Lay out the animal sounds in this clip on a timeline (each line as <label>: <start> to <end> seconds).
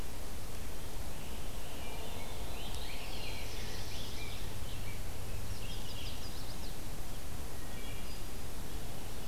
Red-eyed Vireo (Vireo olivaceus): 0.0 to 9.3 seconds
Rose-breasted Grosbeak (Pheucticus ludovicianus): 1.4 to 4.9 seconds
Black-throated Blue Warbler (Setophaga caerulescens): 2.9 to 4.3 seconds
Chestnut-sided Warbler (Setophaga pensylvanica): 5.5 to 6.9 seconds
Wood Thrush (Hylocichla mustelina): 7.4 to 8.3 seconds